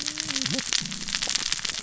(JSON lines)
{"label": "biophony, cascading saw", "recorder": "SoundTrap 600 or HydroMoth"}